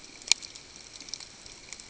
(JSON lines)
{"label": "ambient", "recorder": "HydroMoth"}